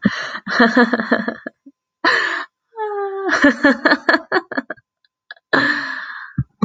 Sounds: Laughter